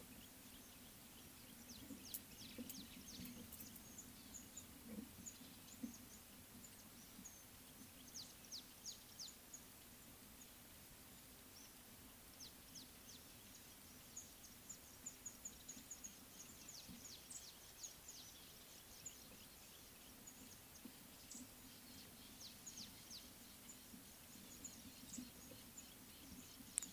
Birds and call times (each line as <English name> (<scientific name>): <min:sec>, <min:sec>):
Mouse-colored Penduline-Tit (Anthoscopus musculus): 0:04.3, 0:15.0, 0:21.3
Red-fronted Prinia (Prinia rufifrons): 0:08.5, 0:12.8, 0:22.8